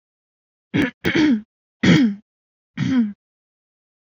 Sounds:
Throat clearing